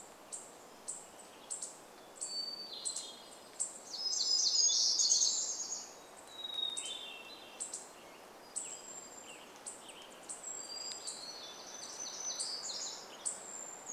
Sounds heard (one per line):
Hermit Thrush song
Brown Creeper song
Brown Creeper call
unidentified bird chip note
warbler song
Western Tanager song